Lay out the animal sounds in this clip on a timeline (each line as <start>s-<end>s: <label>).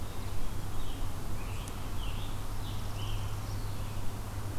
0.4s-3.7s: Scarlet Tanager (Piranga olivacea)
2.4s-3.7s: Northern Parula (Setophaga americana)